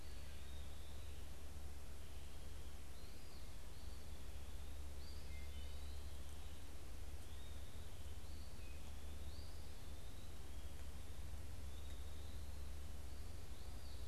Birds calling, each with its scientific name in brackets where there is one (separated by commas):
Wood Thrush (Hylocichla mustelina), unidentified bird, Eastern Phoebe (Sayornis phoebe), Eastern Wood-Pewee (Contopus virens)